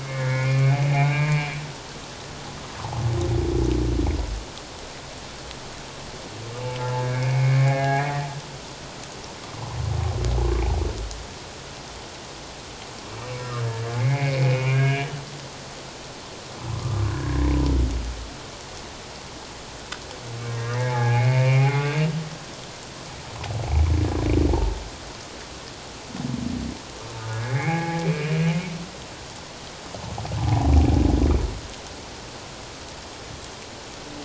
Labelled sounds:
0.0	1.6	humpback whale, 1.4 to 2.6 kHz
6.9	8.3	humpback whale, 0.78 to 2.5 kHz
13.6	15.1	humpback whale, 1.6 to 2.5 kHz
16.8	17.5	humpback whale, 1.0 to 1.8 kHz
20.4	21.9	humpback whale, 0.78 to 2.6 kHz
27.3	28.3	humpback whale, 0.78 to 2.6 kHz
30.4	30.7	humpback whale, 0.78 to 1.0 kHz

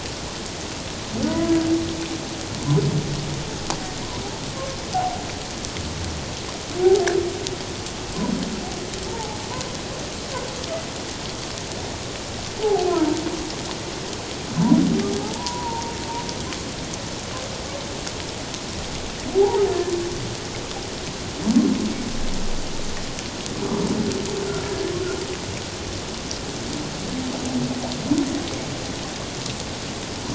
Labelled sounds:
1.3	1.5	humpback whale, 0.91 to 1.0 kHz
4.9	5.3	humpback whale, 0.78 to 0.84 kHz
9.1	9.4	humpback whale, 0.81 to 0.97 kHz
12.6	12.9	humpback whale, 0.78 to 0.94 kHz
15.3	15.9	humpback whale, 0.84 to 1.0 kHz
19.3	19.9	humpback whale, 0.78 to 1.8 kHz

